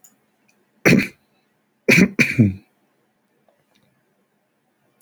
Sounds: Throat clearing